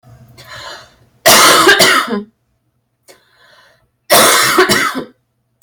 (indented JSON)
{
  "expert_labels": [
    {
      "quality": "good",
      "cough_type": "dry",
      "dyspnea": false,
      "wheezing": false,
      "stridor": false,
      "choking": false,
      "congestion": false,
      "nothing": true,
      "diagnosis": "lower respiratory tract infection",
      "severity": "mild"
    }
  ],
  "age": 35,
  "gender": "female",
  "respiratory_condition": false,
  "fever_muscle_pain": false,
  "status": "symptomatic"
}